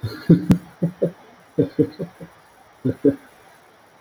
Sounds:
Laughter